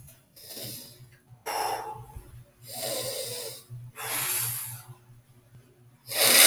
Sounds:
Sniff